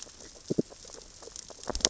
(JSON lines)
{"label": "biophony, grazing", "recorder": "SoundTrap 600 or HydroMoth"}